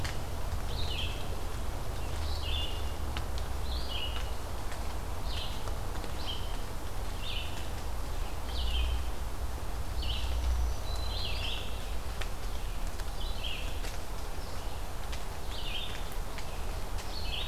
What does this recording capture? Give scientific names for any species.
Vireo olivaceus, Setophaga virens